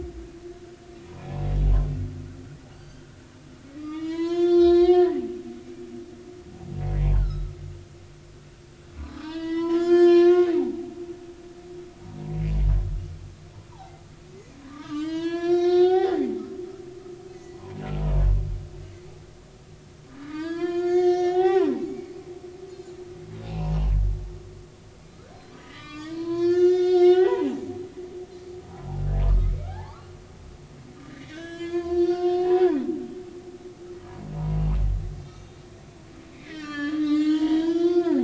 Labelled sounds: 2.7	3.1	humpback whale, 1.5 to 4.8 kHz
3.8	5.2	humpback whale, 0.86 to 6.0 kHz
7.1	7.5	humpback whale, 1.2 to 4.6 kHz
9.0	10.9	humpback whale, 0.80 to 6.0 kHz
13.7	16.3	humpback whale, 0.80 to 7.6 kHz
17.3	17.8	humpback whale, 0.86 to 6.2 kHz
20.1	22.1	humpback whale, 0.80 to 6.6 kHz
23.5	23.7	humpback whale, 2.4 to 3.0 kHz
25.6	27.6	humpback whale, 0.80 to 7.3 kHz
29.4	30.1	humpback whale, 0.80 to 2.4 kHz
31.1	32.8	humpback whale, 0.80 to 6.1 kHz
35.2	35.6	humpback whale, 2.2 to 4.2 kHz
36.3	38.2	humpback whale, 0.80 to 6.9 kHz

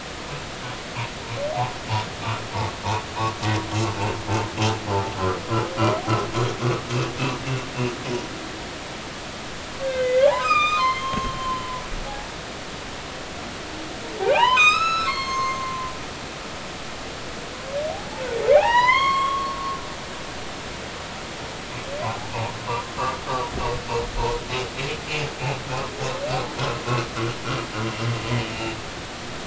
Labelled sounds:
9.8	11.7	humpback whale, 0.80 to 7.6 kHz
12.0	12.3	humpback whale, 0.80 to 0.93 kHz
14.2	15.9	humpback whale, 0.80 to 8.0 kHz
18.5	19.6	humpback whale, 0.80 to 7.7 kHz
22.0	22.5	humpback whale, 0.80 to 1.1 kHz

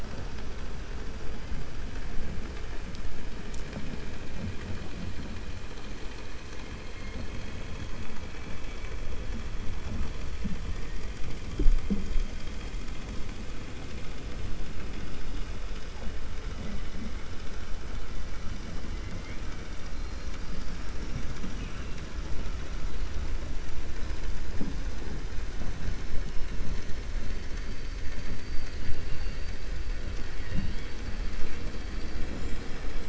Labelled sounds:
8.3	8.9	killer whale, 1.3 to 3.0 kHz
21.2	22.0	killer whale, 1.6 to 3.9 kHz

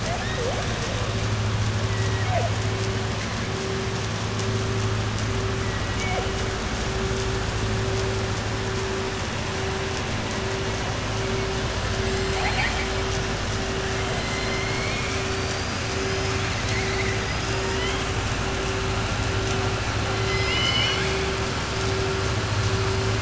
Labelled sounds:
12.2	12.9	killer whale, southern resident, 0.73 to 4.9 kHz
17.5	18.0	killer whale, southern resident, 0.91 to 3.3 kHz
20.2	21.3	killer whale, southern resident, 1.1 to 6.2 kHz

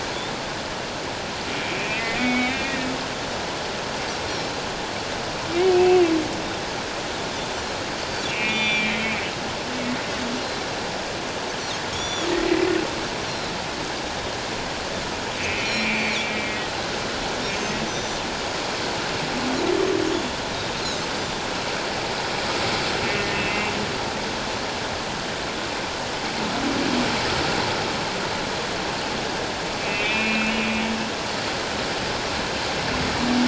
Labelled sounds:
1.6	2.9	humpback whale, 1.8 to 3.9 kHz
4.3	4.6	humpback whale, 3.9 to 5.8 kHz
5.7	6.0	humpback whale, 2.5 to 2.7 kHz
8.3	9.3	humpback whale, 2.1 to 5.9 kHz
11.9	12.7	humpback whale, 1.9 to 7.3 kHz
13.3	13.5	humpback whale, 3.9 to 4.3 kHz
15.4	16.6	humpback whale, 2.1 to 5.8 kHz
17.9	18.2	humpback whale, 5.8 to 6.1 kHz
20.1	21.0	humpback whale, 3.3 to 4.3 kHz
23.1	23.7	humpback whale, 2.0 to 2.8 kHz
29.8	30.6	humpback whale, 2.1 to 2.7 kHz

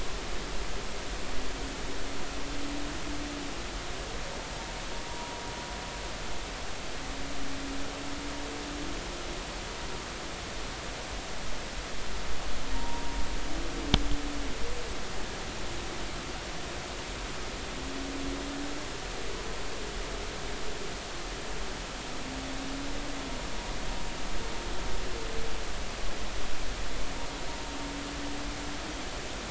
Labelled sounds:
5.1	5.4	humpback whale, 0.90 to 0.99 kHz
12.7	13.2	humpback whale, 0.90 to 0.99 kHz

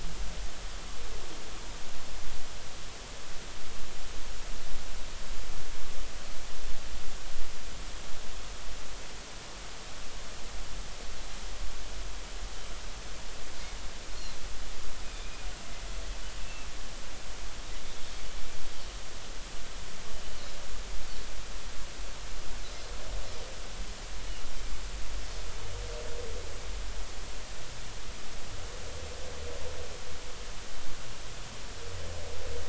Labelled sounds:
15.2	15.5	Pacific white-sided dolphin, 2.3 to 2.5 kHz
16.4	16.7	Pacific white-sided dolphin, 2.6 to 2.7 kHz

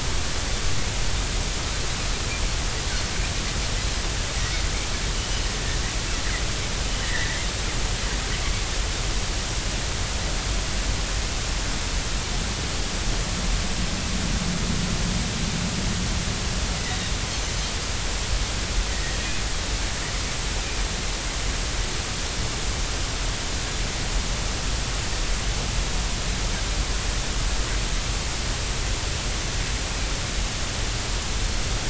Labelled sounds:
7.0	7.5	killer whale, 1.7 to 2.1 kHz
18.9	19.2	killer whale, 1.8 to 2.0 kHz

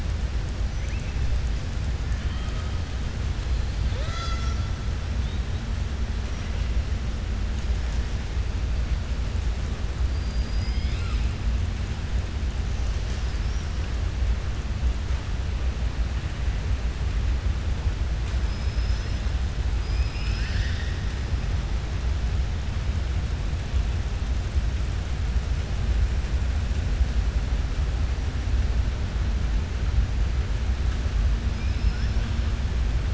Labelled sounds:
10.0	11.3	killer whale, southern resident, 1.3 to 5.1 kHz
31.5	32.1	killer whale, southern resident, 5.1 to 5.7 kHz

